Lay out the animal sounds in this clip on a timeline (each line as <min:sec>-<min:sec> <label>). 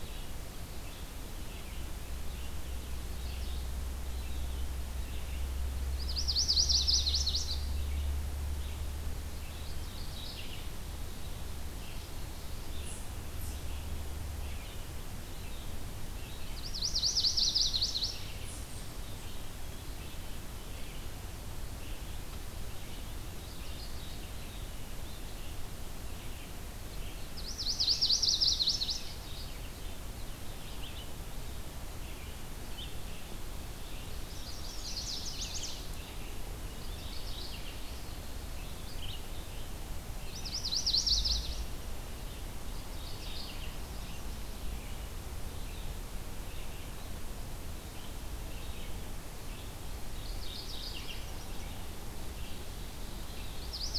0:00.0-0:09.8 Red-eyed Vireo (Vireo olivaceus)
0:02.6-0:03.9 Mourning Warbler (Geothlypis philadelphia)
0:05.7-0:07.8 Chestnut-sided Warbler (Setophaga pensylvanica)
0:09.6-0:11.1 Mourning Warbler (Geothlypis philadelphia)
0:11.0-0:54.0 Red-eyed Vireo (Vireo olivaceus)
0:16.3-0:18.3 Chestnut-sided Warbler (Setophaga pensylvanica)
0:23.3-0:24.4 Mourning Warbler (Geothlypis philadelphia)
0:27.3-0:29.5 Chestnut-sided Warbler (Setophaga pensylvanica)
0:34.2-0:35.8 Chestnut-sided Warbler (Setophaga pensylvanica)
0:36.4-0:38.2 Mourning Warbler (Geothlypis philadelphia)
0:39.9-0:42.3 Chestnut-sided Warbler (Setophaga pensylvanica)
0:42.6-0:43.7 Mourning Warbler (Geothlypis philadelphia)
0:49.8-0:51.3 Mourning Warbler (Geothlypis philadelphia)
0:50.6-0:51.8 Magnolia Warbler (Setophaga magnolia)
0:53.2-0:54.0 Chestnut-sided Warbler (Setophaga pensylvanica)